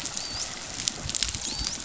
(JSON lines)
{"label": "biophony, dolphin", "recorder": "SoundTrap 500"}